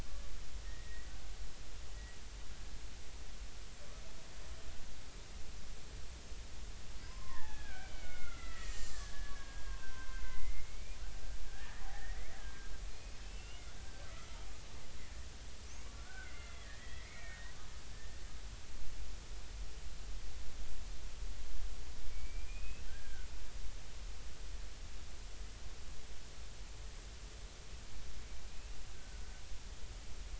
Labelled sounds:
0.6	1.1	killer whale, Bigg's (transient), 1.8 to 2.0 kHz
7.0	11.0	killer whale, Bigg's (transient), 0.80 to 5.2 kHz
11.4	14.8	killer whale, Bigg's (transient), 1.3 to 3.0 kHz
15.9	18.2	killer whale, Bigg's (transient), 1.3 to 3.4 kHz
22.1	23.3	killer whale, Bigg's (transient), 1.4 to 2.7 kHz
28.5	29.2	killer whale, Bigg's (transient), 1.4 to 2.7 kHz

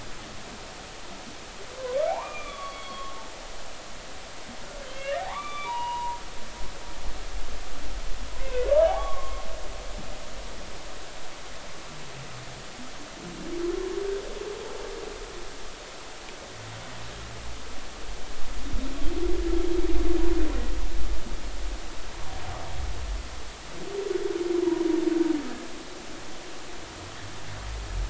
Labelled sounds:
2.0	3.2	humpback whale, 0.80 to 4.5 kHz
4.9	6.2	humpback whale, 0.80 to 3.6 kHz
8.4	9.5	humpback whale, 0.80 to 2.7 kHz

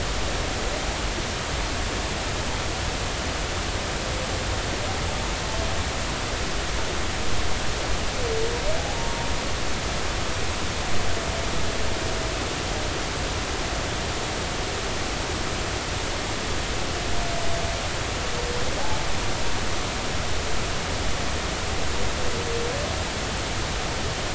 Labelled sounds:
8.9	9.3	humpback whale, 0.86 to 0.99 kHz

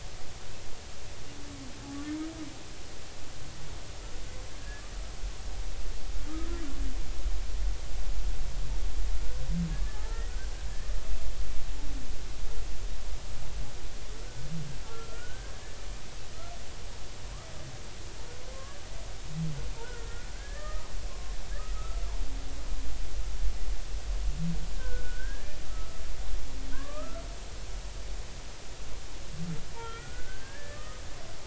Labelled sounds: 4.5	4.8	humpback whale, 1.6 to 1.8 kHz
9.9	10.2	humpback whale, 0.80 to 0.93 kHz
14.8	15.5	humpback whale, 1.3 to 1.7 kHz
19.8	21.4	humpback whale, 1.0 to 2.0 kHz
21.7	22.0	humpback whale, 1.2 to 1.4 kHz
24.7	26.0	humpback whale, 1.2 to 1.9 kHz
26.7	27.2	humpback whale, 0.96 to 1.8 kHz
29.8	31.0	humpback whale, 1.2 to 3.3 kHz

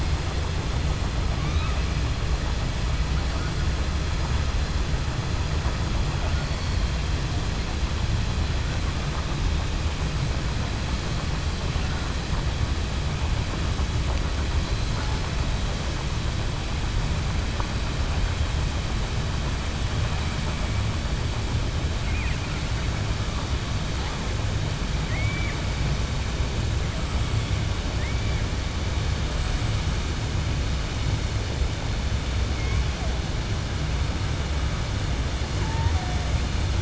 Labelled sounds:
6.3	6.8	killer whale, 4.3 to 5.4 kHz
25.0	25.6	killer whale, 1.1 to 2.4 kHz

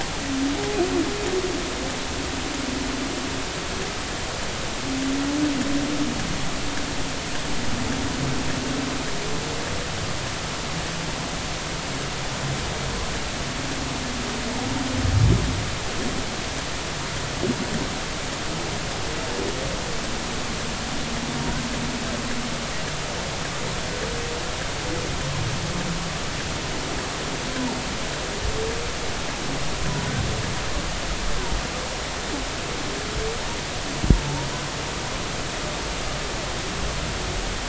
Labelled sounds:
34.1	34.5	humpback whale, 0.83 to 0.99 kHz

